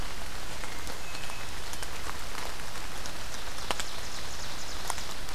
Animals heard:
Ovenbird (Seiurus aurocapilla), Hermit Thrush (Catharus guttatus)

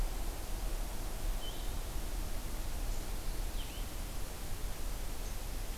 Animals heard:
Blue-headed Vireo (Vireo solitarius)

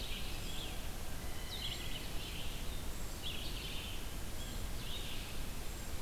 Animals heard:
unidentified call, Blue Jay (Cyanocitta cristata), Red-eyed Vireo (Vireo olivaceus), Scarlet Tanager (Piranga olivacea)

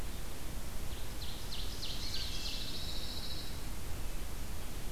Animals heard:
Pine Warbler (Setophaga pinus), Ovenbird (Seiurus aurocapilla)

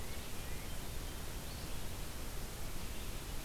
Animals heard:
Red-eyed Vireo (Vireo olivaceus)

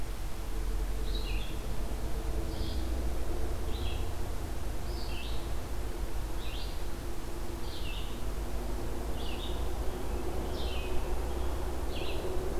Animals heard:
Red-eyed Vireo (Vireo olivaceus)

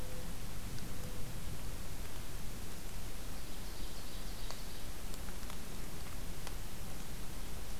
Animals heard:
Ovenbird (Seiurus aurocapilla)

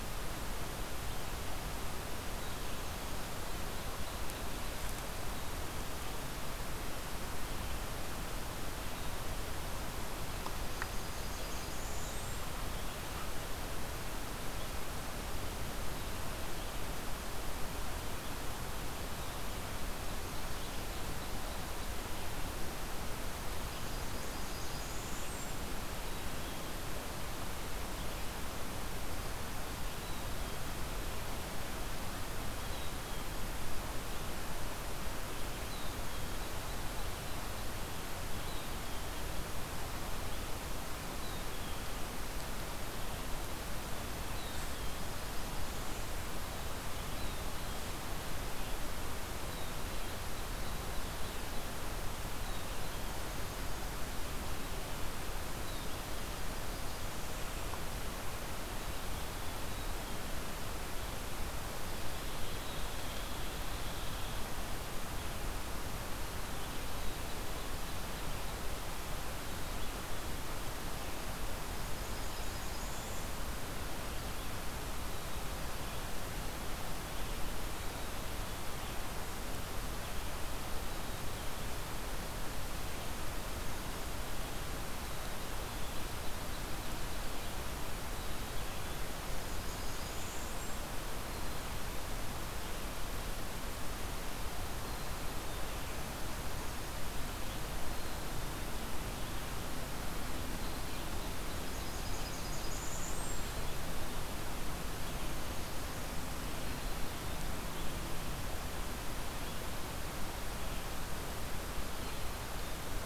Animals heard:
Hairy Woodpecker (Dryobates villosus), Blackburnian Warbler (Setophaga fusca), Black-capped Chickadee (Poecile atricapillus), Ovenbird (Seiurus aurocapilla)

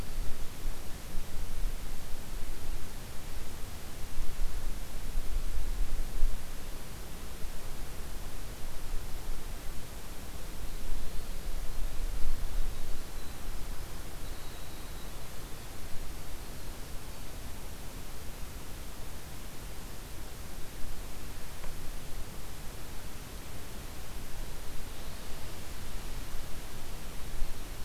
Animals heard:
Winter Wren (Troglodytes hiemalis), Black-throated Blue Warbler (Setophaga caerulescens)

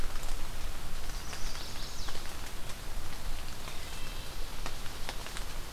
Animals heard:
Wood Thrush (Hylocichla mustelina), Chestnut-sided Warbler (Setophaga pensylvanica)

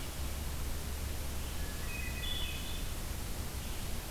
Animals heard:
Hermit Thrush (Catharus guttatus)

